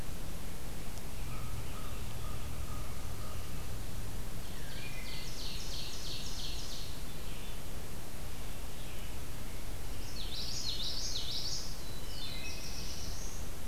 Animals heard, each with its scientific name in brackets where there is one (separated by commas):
Ovenbird (Seiurus aurocapilla), Common Yellowthroat (Geothlypis trichas), American Crow (Corvus brachyrhynchos), Wood Thrush (Hylocichla mustelina), American Robin (Turdus migratorius), Black-throated Blue Warbler (Setophaga caerulescens), Red-eyed Vireo (Vireo olivaceus)